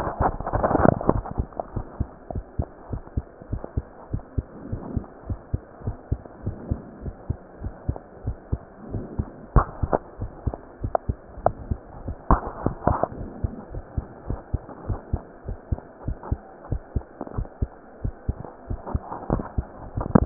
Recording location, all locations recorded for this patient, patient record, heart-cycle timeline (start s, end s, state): mitral valve (MV)
aortic valve (AV)+pulmonary valve (PV)+tricuspid valve (TV)+mitral valve (MV)
#Age: Child
#Sex: Female
#Height: 127.0 cm
#Weight: 22.2 kg
#Pregnancy status: False
#Murmur: Absent
#Murmur locations: nan
#Most audible location: nan
#Systolic murmur timing: nan
#Systolic murmur shape: nan
#Systolic murmur grading: nan
#Systolic murmur pitch: nan
#Systolic murmur quality: nan
#Diastolic murmur timing: nan
#Diastolic murmur shape: nan
#Diastolic murmur grading: nan
#Diastolic murmur pitch: nan
#Diastolic murmur quality: nan
#Outcome: Abnormal
#Campaign: 2015 screening campaign
0.00	2.16	unannotated
2.16	2.34	diastole
2.34	2.44	S1
2.44	2.54	systole
2.54	2.68	S2
2.68	2.90	diastole
2.90	3.02	S1
3.02	3.16	systole
3.16	3.26	S2
3.26	3.50	diastole
3.50	3.62	S1
3.62	3.76	systole
3.76	3.86	S2
3.86	4.12	diastole
4.12	4.22	S1
4.22	4.36	systole
4.36	4.46	S2
4.46	4.70	diastole
4.70	4.84	S1
4.84	4.94	systole
4.94	5.04	S2
5.04	5.28	diastole
5.28	5.40	S1
5.40	5.52	systole
5.52	5.62	S2
5.62	5.84	diastole
5.84	5.96	S1
5.96	6.08	systole
6.08	6.20	S2
6.20	6.44	diastole
6.44	6.58	S1
6.58	6.68	systole
6.68	6.80	S2
6.80	7.02	diastole
7.02	7.14	S1
7.14	7.26	systole
7.26	7.36	S2
7.36	7.62	diastole
7.62	7.74	S1
7.74	7.84	systole
7.84	7.98	S2
7.98	8.26	diastole
8.26	8.36	S1
8.36	8.48	systole
8.48	8.62	S2
8.62	8.92	diastole
8.92	9.06	S1
9.06	9.16	systole
9.16	9.28	S2
9.28	9.54	diastole
9.54	9.72	S1
9.72	9.82	systole
9.82	9.98	S2
9.98	10.20	diastole
10.20	10.32	S1
10.32	10.42	systole
10.42	10.54	S2
10.54	10.82	diastole
10.82	10.94	S1
10.94	11.08	systole
11.08	11.16	S2
11.16	11.42	diastole
11.42	11.56	S1
11.56	11.68	systole
11.68	11.78	S2
11.78	12.04	diastole
12.04	12.16	S1
12.16	12.24	systole
12.24	12.40	S2
12.40	12.64	diastole
12.64	12.78	S1
12.78	12.86	systole
12.86	12.98	S2
12.98	13.18	diastole
13.18	13.32	S1
13.32	13.42	systole
13.42	13.52	S2
13.52	13.72	diastole
13.72	13.82	S1
13.82	13.94	systole
13.94	14.08	S2
14.08	14.28	diastole
14.28	14.40	S1
14.40	14.50	systole
14.50	14.64	S2
14.64	14.86	diastole
14.86	15.00	S1
15.00	15.12	systole
15.12	15.24	S2
15.24	15.48	diastole
15.48	15.58	S1
15.58	15.68	systole
15.68	15.82	S2
15.82	16.06	diastole
16.06	16.18	S1
16.18	16.28	systole
16.28	16.42	S2
16.42	16.70	diastole
16.70	16.82	S1
16.82	16.92	systole
16.92	17.06	S2
17.06	17.34	diastole
17.34	17.48	S1
17.48	17.58	systole
17.58	17.72	S2
17.72	18.00	diastole
18.00	18.14	S1
18.14	18.26	systole
18.26	18.40	S2
18.40	18.68	diastole
18.68	18.80	S1
18.80	18.90	systole
18.90	19.02	S2
19.02	19.30	diastole
19.30	19.44	S1
19.44	19.54	systole
19.54	19.66	S2
19.66	19.94	diastole
19.94	20.26	unannotated